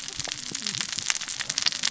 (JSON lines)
{"label": "biophony, cascading saw", "recorder": "SoundTrap 600 or HydroMoth"}